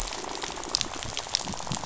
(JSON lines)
{"label": "biophony", "recorder": "SoundTrap 500"}
{"label": "biophony, rattle", "recorder": "SoundTrap 500"}